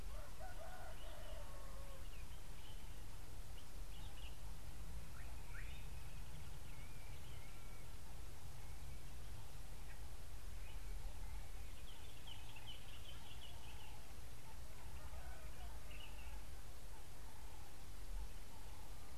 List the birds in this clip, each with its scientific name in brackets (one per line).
Common Bulbul (Pycnonotus barbatus)
Slate-colored Boubou (Laniarius funebris)